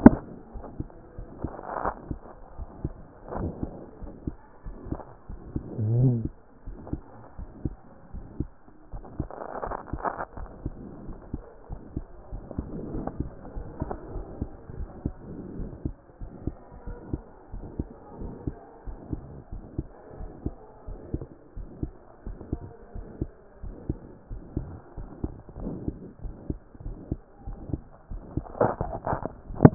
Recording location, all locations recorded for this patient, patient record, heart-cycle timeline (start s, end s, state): aortic valve (AV)
aortic valve (AV)+pulmonary valve (PV)+tricuspid valve (TV)+mitral valve (MV)
#Age: Child
#Sex: Female
#Height: 133.0 cm
#Weight: 29.2 kg
#Pregnancy status: False
#Murmur: Present
#Murmur locations: aortic valve (AV)+mitral valve (MV)+pulmonary valve (PV)+tricuspid valve (TV)
#Most audible location: mitral valve (MV)
#Systolic murmur timing: Holosystolic
#Systolic murmur shape: Plateau
#Systolic murmur grading: III/VI or higher
#Systolic murmur pitch: Medium
#Systolic murmur quality: Musical
#Diastolic murmur timing: nan
#Diastolic murmur shape: nan
#Diastolic murmur grading: nan
#Diastolic murmur pitch: nan
#Diastolic murmur quality: nan
#Outcome: Abnormal
#Campaign: 2014 screening campaign
0.00	0.16	unannotated
0.16	0.30	systole
0.30	0.38	S2
0.38	0.54	diastole
0.54	0.64	S1
0.64	0.78	systole
0.78	0.88	S2
0.88	1.16	diastole
1.16	1.28	S1
1.28	1.42	systole
1.42	1.52	S2
1.52	1.82	diastole
1.82	1.94	S1
1.94	2.08	systole
2.08	2.20	S2
2.20	2.56	diastole
2.56	2.68	S1
2.68	2.82	systole
2.82	2.92	S2
2.92	3.36	diastole
3.36	3.52	S1
3.52	3.64	systole
3.64	3.76	S2
3.76	4.02	diastole
4.02	4.14	S1
4.14	4.26	systole
4.26	4.32	S2
4.32	4.66	diastole
4.66	4.76	S1
4.76	4.90	systole
4.90	5.00	S2
5.00	5.28	diastole
5.28	5.37	S1
5.37	5.55	systole
5.55	5.61	S2
5.61	5.85	diastole
5.85	5.95	S1
5.95	6.24	systole
6.24	6.31	S2
6.31	6.66	diastole
6.66	6.76	S1
6.76	6.92	systole
6.92	7.02	S2
7.02	7.38	diastole
7.38	7.50	S1
7.50	7.64	systole
7.64	7.74	S2
7.74	8.12	diastole
8.12	8.24	S1
8.24	8.38	systole
8.38	8.48	S2
8.48	8.92	diastole
8.92	9.04	S1
9.04	9.18	systole
9.18	9.28	S2
9.28	9.64	diastole
9.64	9.76	S1
9.76	9.92	systole
9.92	10.02	S2
10.02	10.38	diastole
10.38	10.50	S1
10.50	10.64	systole
10.64	10.74	S2
10.74	11.04	diastole
11.04	11.18	S1
11.18	11.32	systole
11.32	11.42	S2
11.42	11.70	diastole
11.70	11.80	S1
11.80	11.94	systole
11.94	12.06	S2
12.06	12.32	diastole
12.32	12.42	S1
12.42	12.56	systole
12.56	12.66	S2
12.66	12.94	diastole
12.94	13.06	S1
13.06	13.18	systole
13.18	13.30	S2
13.30	13.56	diastole
13.56	13.68	S1
13.68	13.80	systole
13.80	13.90	S2
13.90	14.14	diastole
14.14	14.26	S1
14.26	14.40	systole
14.40	14.50	S2
14.50	14.78	diastole
14.78	14.90	S1
14.90	15.04	systole
15.04	15.14	S2
15.14	15.58	diastole
15.58	15.70	S1
15.70	15.84	systole
15.84	15.96	S2
15.96	16.22	diastole
16.22	16.34	S1
16.34	16.46	systole
16.46	16.54	S2
16.54	16.88	diastole
16.88	16.98	S1
16.98	17.12	systole
17.12	17.22	S2
17.22	17.52	diastole
17.52	17.64	S1
17.64	17.78	systole
17.78	17.88	S2
17.88	18.20	diastole
18.20	18.32	S1
18.32	18.46	systole
18.46	18.56	S2
18.56	18.86	diastole
18.86	18.98	S1
18.98	19.12	systole
19.12	19.22	S2
19.22	19.52	diastole
19.52	19.64	S1
19.64	19.78	systole
19.78	19.86	S2
19.86	20.18	diastole
20.18	20.30	S1
20.30	20.44	systole
20.44	20.54	S2
20.54	20.88	diastole
20.88	20.98	S1
20.98	21.12	systole
21.12	21.24	S2
21.24	21.56	diastole
21.56	21.68	S1
21.68	21.82	systole
21.82	21.92	S2
21.92	22.26	diastole
22.26	22.38	S1
22.38	22.52	systole
22.52	22.62	S2
22.62	22.96	diastole
22.96	23.06	S1
23.06	23.20	systole
23.20	23.30	S2
23.30	23.64	diastole
23.64	23.74	S1
23.74	23.88	systole
23.88	23.98	S2
23.98	24.30	diastole
24.30	24.42	S1
24.42	24.56	systole
24.56	24.68	S2
24.68	24.98	diastole
24.98	25.10	S1
25.10	25.22	systole
25.22	25.32	S2
25.32	25.62	diastole
25.62	25.74	S1
25.74	25.86	systole
25.86	25.96	S2
25.96	26.24	diastole
26.24	26.36	S1
26.36	26.48	systole
26.48	26.58	S2
26.58	26.86	diastole
26.86	26.98	S1
26.98	27.10	systole
27.10	27.20	S2
27.20	27.46	diastole
27.46	27.58	S1
27.58	27.72	systole
27.72	27.82	S2
27.82	28.12	diastole
28.12	28.22	S1
28.22	28.36	systole
28.36	28.46	S2
28.46	28.84	diastole
28.84	28.96	S1
28.96	29.10	systole
29.10	29.20	S2
29.20	29.52	diastole
29.52	29.74	S1